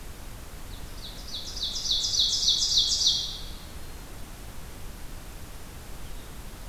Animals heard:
Ovenbird (Seiurus aurocapilla)

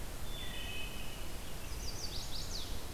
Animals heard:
Wood Thrush (Hylocichla mustelina), Chestnut-sided Warbler (Setophaga pensylvanica)

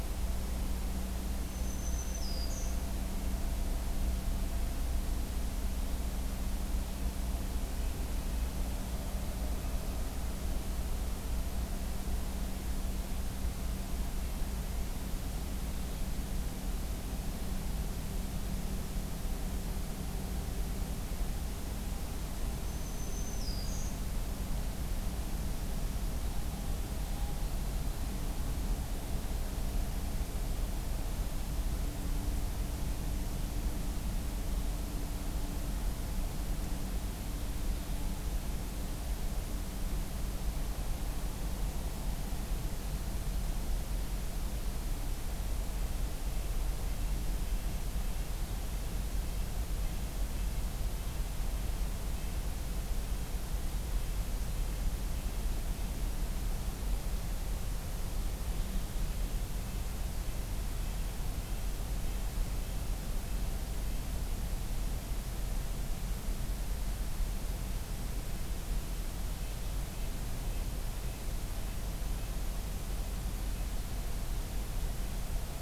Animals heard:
Black-throated Green Warbler (Setophaga virens), Red-breasted Nuthatch (Sitta canadensis)

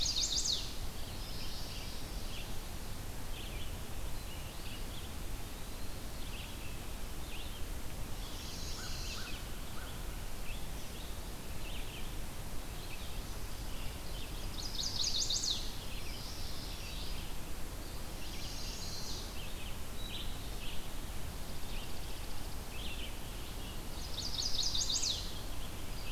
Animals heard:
Eastern Wood-Pewee (Contopus virens), Yellow-rumped Warbler (Setophaga coronata), Chestnut-sided Warbler (Setophaga pensylvanica), American Crow (Corvus brachyrhynchos), Chipping Sparrow (Spizella passerina), Red-eyed Vireo (Vireo olivaceus)

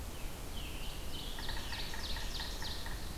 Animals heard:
Yellow-bellied Sapsucker (Sphyrapicus varius), Scarlet Tanager (Piranga olivacea), Ovenbird (Seiurus aurocapilla)

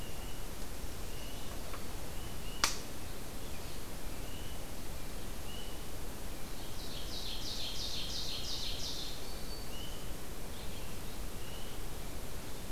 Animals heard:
Black-throated Green Warbler (Setophaga virens), Ovenbird (Seiurus aurocapilla)

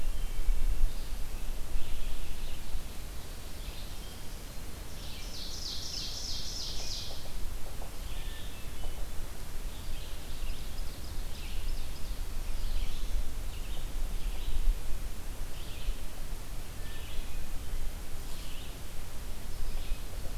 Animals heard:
Red-eyed Vireo (Vireo olivaceus), Hermit Thrush (Catharus guttatus), Ovenbird (Seiurus aurocapilla), Black-throated Blue Warbler (Setophaga caerulescens)

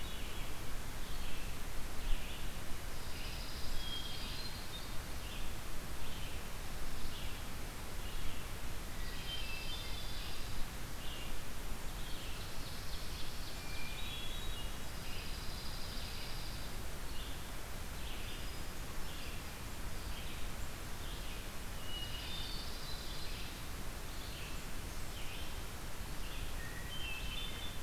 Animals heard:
Dark-eyed Junco (Junco hyemalis), Blackburnian Warbler (Setophaga fusca), Red-eyed Vireo (Vireo olivaceus), Ovenbird (Seiurus aurocapilla), Hermit Thrush (Catharus guttatus)

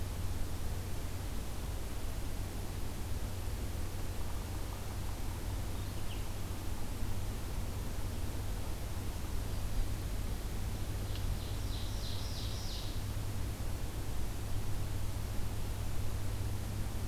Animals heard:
Black-capped Chickadee (Poecile atricapillus), Ovenbird (Seiurus aurocapilla)

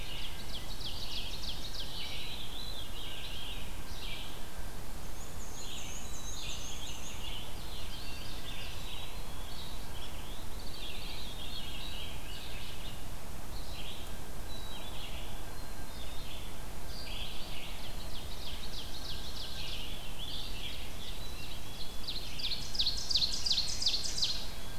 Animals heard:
Red-eyed Vireo (Vireo olivaceus), Eastern Wood-Pewee (Contopus virens), Ovenbird (Seiurus aurocapilla), Black-and-white Warbler (Mniotilta varia), Veery (Catharus fuscescens), Black-capped Chickadee (Poecile atricapillus)

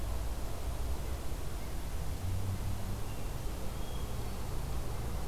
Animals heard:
Hermit Thrush (Catharus guttatus)

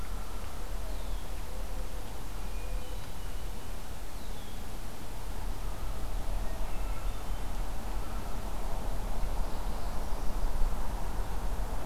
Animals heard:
Mourning Dove (Zenaida macroura), Hermit Thrush (Catharus guttatus), Red-winged Blackbird (Agelaius phoeniceus), Common Loon (Gavia immer), Northern Parula (Setophaga americana)

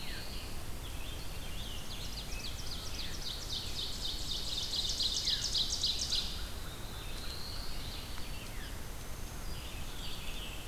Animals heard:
Red-eyed Vireo (Vireo olivaceus), Black-throated Blue Warbler (Setophaga caerulescens), Ovenbird (Seiurus aurocapilla), Scarlet Tanager (Piranga olivacea), Veery (Catharus fuscescens), Black-throated Green Warbler (Setophaga virens)

